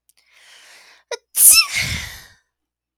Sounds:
Sneeze